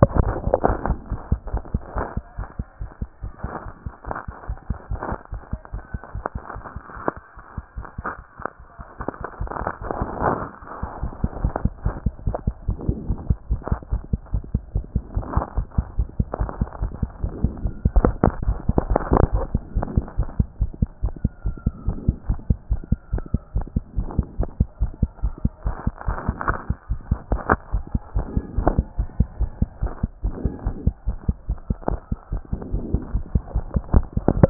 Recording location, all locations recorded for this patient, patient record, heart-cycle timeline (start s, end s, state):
mitral valve (MV)
aortic valve (AV)+pulmonary valve (PV)+tricuspid valve (TV)+mitral valve (MV)
#Age: Child
#Sex: Male
#Height: 124.0 cm
#Weight: 21.3 kg
#Pregnancy status: False
#Murmur: Absent
#Murmur locations: nan
#Most audible location: nan
#Systolic murmur timing: nan
#Systolic murmur shape: nan
#Systolic murmur grading: nan
#Systolic murmur pitch: nan
#Systolic murmur quality: nan
#Diastolic murmur timing: nan
#Diastolic murmur shape: nan
#Diastolic murmur grading: nan
#Diastolic murmur pitch: nan
#Diastolic murmur quality: nan
#Outcome: Abnormal
#Campaign: 2014 screening campaign
0.00	19.66	unannotated
19.66	19.74	diastole
19.74	19.86	S1
19.86	19.96	systole
19.96	20.04	S2
20.04	20.18	diastole
20.18	20.28	S1
20.28	20.38	systole
20.38	20.48	S2
20.48	20.60	diastole
20.60	20.70	S1
20.70	20.80	systole
20.80	20.88	S2
20.88	21.04	diastole
21.04	21.14	S1
21.14	21.22	systole
21.22	21.30	S2
21.30	21.44	diastole
21.44	21.56	S1
21.56	21.64	systole
21.64	21.74	S2
21.74	21.86	diastole
21.86	21.96	S1
21.96	22.06	systole
22.06	22.16	S2
22.16	22.28	diastole
22.28	22.38	S1
22.38	22.48	systole
22.48	22.58	S2
22.58	22.70	diastole
22.70	22.80	S1
22.80	22.90	systole
22.90	22.98	S2
22.98	23.12	diastole
23.12	23.24	S1
23.24	23.32	systole
23.32	23.40	S2
23.40	23.56	diastole
23.56	23.66	S1
23.66	23.74	systole
23.74	23.84	S2
23.84	23.96	diastole
23.96	24.08	S1
24.08	24.16	systole
24.16	24.26	S2
24.26	24.38	diastole
24.38	24.48	S1
24.48	24.58	systole
24.58	24.68	S2
24.68	24.80	diastole
24.80	24.92	S1
24.92	25.00	systole
25.00	25.10	S2
25.10	25.22	diastole
25.22	25.34	S1
25.34	25.44	systole
25.44	25.52	S2
25.52	25.66	diastole
25.66	25.76	S1
25.76	25.86	systole
25.86	25.92	S2
25.92	26.08	diastole
26.08	26.18	S1
26.18	26.26	systole
26.26	26.36	S2
26.36	26.48	diastole
26.48	26.58	S1
26.58	26.68	systole
26.68	26.76	S2
26.76	26.90	diastole
26.90	27.00	S1
27.00	27.10	systole
27.10	27.18	S2
27.18	27.30	diastole
27.30	27.40	S1
27.40	27.50	systole
27.50	27.58	S2
27.58	27.72	diastole
27.72	27.84	S1
27.84	27.94	systole
27.94	28.00	S2
28.00	28.16	diastole
28.16	28.26	S1
28.26	28.34	systole
28.34	28.44	S2
28.44	28.58	diastole
28.58	28.69	S1
28.69	28.78	systole
28.78	28.84	S2
28.84	28.98	diastole
28.98	29.08	S1
29.08	29.18	systole
29.18	29.28	S2
29.28	29.40	diastole
29.40	29.50	S1
29.50	29.60	systole
29.60	29.68	S2
29.68	29.82	diastole
29.82	29.92	S1
29.92	30.02	systole
30.02	30.10	S2
30.10	30.24	diastole
30.24	30.34	S1
30.34	30.44	systole
30.44	30.52	S2
30.52	30.64	diastole
30.64	30.76	S1
30.76	30.86	systole
30.86	30.94	S2
30.94	31.08	diastole
31.08	31.16	S1
31.16	31.26	systole
31.26	31.36	S2
31.36	31.48	diastole
31.48	31.58	S1
31.58	31.68	systole
31.68	31.76	S2
31.76	31.88	diastole
31.88	32.00	S1
32.00	32.10	systole
32.10	32.18	S2
32.18	32.32	diastole
32.32	32.42	S1
32.42	32.52	systole
32.52	32.60	S2
32.60	32.72	diastole
32.72	34.50	unannotated